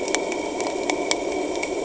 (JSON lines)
{"label": "anthrophony, boat engine", "recorder": "HydroMoth"}